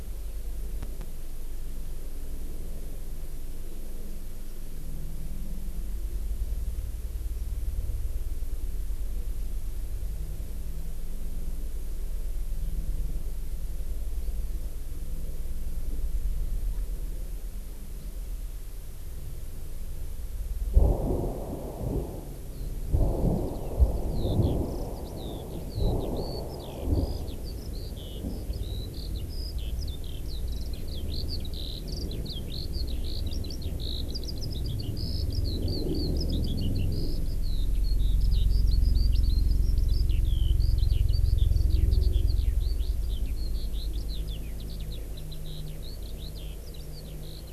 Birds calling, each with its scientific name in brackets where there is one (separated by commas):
Eurasian Skylark (Alauda arvensis)